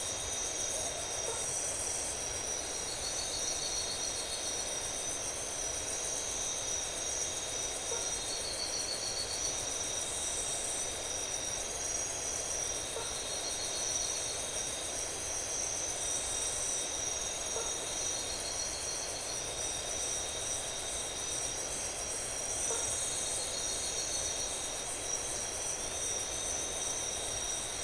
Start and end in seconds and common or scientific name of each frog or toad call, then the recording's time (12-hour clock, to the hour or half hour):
1.2	1.5	blacksmith tree frog
7.8	8.2	blacksmith tree frog
12.9	13.2	blacksmith tree frog
17.4	17.9	blacksmith tree frog
22.6	23.0	blacksmith tree frog
2am